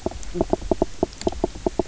{"label": "biophony, knock croak", "recorder": "SoundTrap 300"}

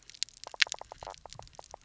{"label": "biophony, knock croak", "recorder": "SoundTrap 300"}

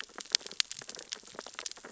{"label": "biophony, sea urchins (Echinidae)", "recorder": "SoundTrap 600 or HydroMoth"}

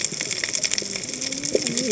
{"label": "biophony, cascading saw", "recorder": "HydroMoth"}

